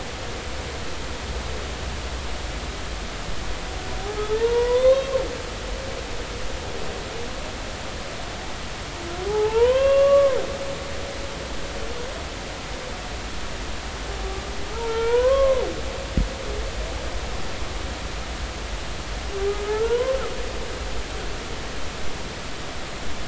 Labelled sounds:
4.2	5.1	humpback whale, 0.83 to 3.8 kHz
9.3	10.4	humpback whale, 0.80 to 3.4 kHz
14.7	15.6	humpback whale, 0.86 to 3.5 kHz
19.7	20.2	humpback whale, 0.80 to 3.2 kHz

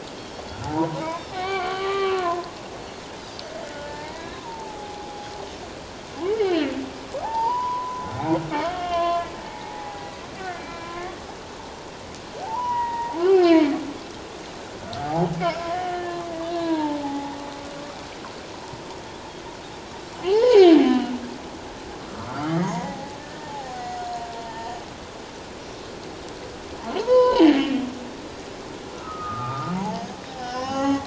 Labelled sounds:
1.3	1.8	Pacific white-sided dolphin, 0.78 to 4.5 kHz
1.3	2.5	humpback whale, 0.94 to 2.0 kHz
3.8	5.3	humpback whale, 0.78 to 2.0 kHz
6.4	6.7	humpback whale, 2.6 to 4.4 kHz
7.2	8.1	humpback whale, 0.78 to 5.1 kHz
8.7	10.1	humpback whale, 0.78 to 3.5 kHz
10.4	11.2	humpback whale, 0.97 to 2.4 kHz
12.4	13.7	humpback whale, 0.78 to 3.0 kHz
15.0	16.2	humpback whale, 0.78 to 1.9 kHz
16.5	17.4	humpback whale, 0.78 to 1.8 kHz
20.1	21.2	humpback whale, 0.78 to 3.2 kHz
22.0	24.8	humpback whale, 0.78 to 4.4 kHz
26.9	27.6	humpback whale, 0.78 to 5.2 kHz
28.9	31.0	humpback whale, 0.78 to 6.8 kHz

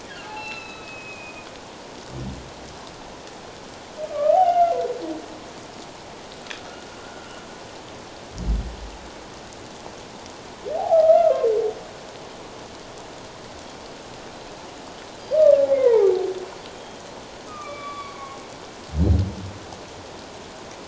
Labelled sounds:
0.2	1.5	humpback whale, 0.78 to 4.1 kHz
4.1	4.8	humpback whale, 0.78 to 3.1 kHz
7.0	7.4	humpback whale, 1.3 to 1.5 kHz
10.8	11.3	humpback whale, 0.78 to 1.4 kHz
15.7	16.1	humpback whale, 0.78 to 2.2 kHz
17.5	18.4	humpback whale, 0.97 to 3.5 kHz

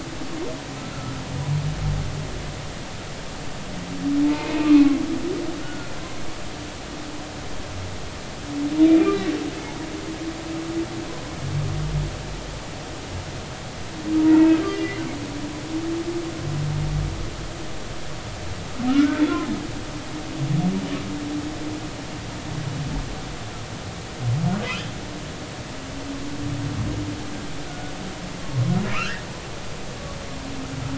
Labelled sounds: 4.2	5.0	humpback whale, 0.83 to 2.6 kHz
5.6	5.9	humpback whale, 1.4 to 1.5 kHz
9.0	9.3	humpback whale, 2.2 to 2.5 kHz
14.7	15.0	humpback whale, 1.9 to 2.2 kHz
18.9	19.2	humpback whale, 1.2 to 1.6 kHz
24.6	24.9	humpback whale, 2.9 to 3.3 kHz
27.7	27.9	humpback whale, 1.4 to 1.5 kHz
28.9	29.2	humpback whale, 0.99 to 2.0 kHz

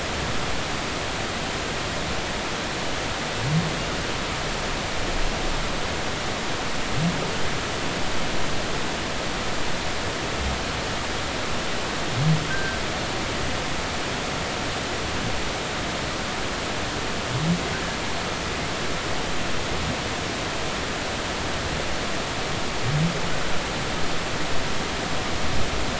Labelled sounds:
12.5	12.8	humpback whale, 1.5 to 1.6 kHz

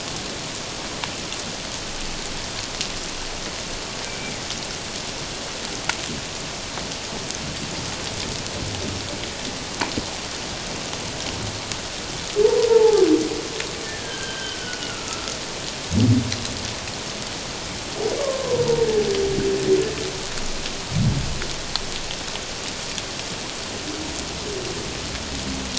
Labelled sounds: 4.0	4.3	humpback whale, 2.2 to 2.4 kHz
12.7	13.0	humpback whale, 0.78 to 0.97 kHz
13.8	15.3	humpback whale, 1.2 to 3.2 kHz
18.2	18.6	humpback whale, 0.91 to 1.2 kHz

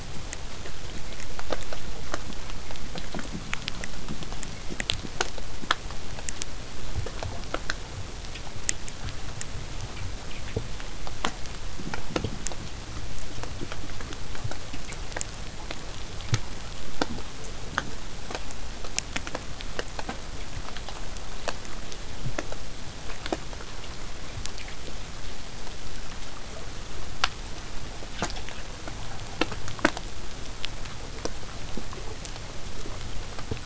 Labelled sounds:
28.7	33.6	vessel noise, 0 to 8.0 kHz

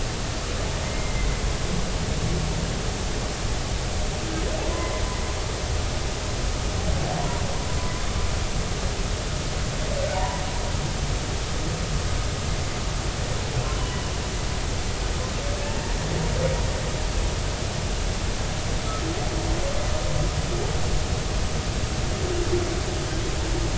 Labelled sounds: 0.8	1.2	humpback whale, 2.0 to 2.2 kHz
4.7	5.0	humpback whale, 0.96 to 2.2 kHz
10.1	10.4	humpback whale, 0.86 to 1.0 kHz
15.6	16.0	humpback whale, 1.6 to 1.9 kHz

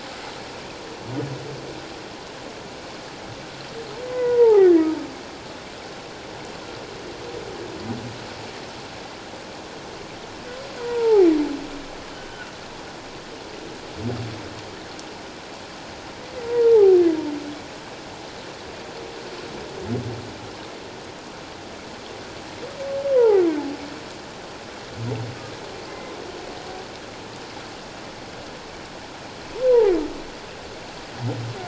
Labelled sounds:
4.0	4.9	humpback whale, 0.78 to 2.1 kHz
10.8	11.3	humpback whale, 0.78 to 1.0 kHz
12.2	12.5	humpback whale, 1.3 to 1.6 kHz
16.5	17.0	humpback whale, 0.78 to 1.0 kHz
23.1	23.4	humpback whale, 0.78 to 1.1 kHz
25.9	26.1	humpback whale, 2.0 to 2.1 kHz
29.7	29.9	humpback whale, 0.78 to 1.0 kHz

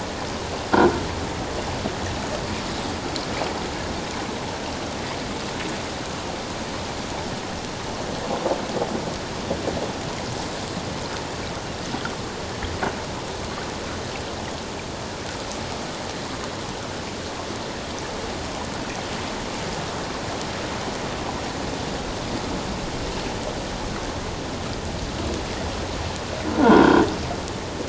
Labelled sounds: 26.5	27.0	croaking sound likely from a nearby submerged object, 1.3 to 1.7 kHz

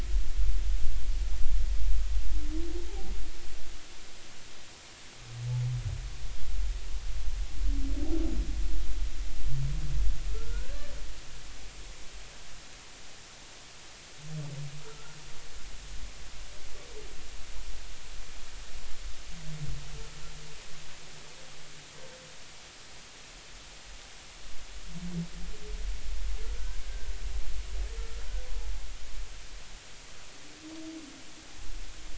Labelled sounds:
2.9	3.1	humpback whale, 0.80 to 0.93 kHz
10.3	10.8	humpback whale, 1.2 to 1.7 kHz
26.8	27.1	humpback whale, 1.5 to 1.7 kHz

